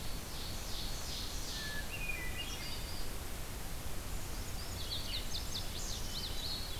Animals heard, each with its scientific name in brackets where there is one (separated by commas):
Ovenbird (Seiurus aurocapilla), Hermit Thrush (Catharus guttatus), Indigo Bunting (Passerina cyanea), Red-eyed Vireo (Vireo olivaceus)